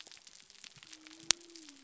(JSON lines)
{"label": "biophony", "recorder": "SoundTrap 300"}